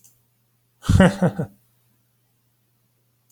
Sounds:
Laughter